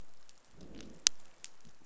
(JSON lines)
{"label": "biophony, growl", "recorder": "SoundTrap 500"}